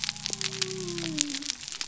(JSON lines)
{"label": "biophony", "recorder": "SoundTrap 300"}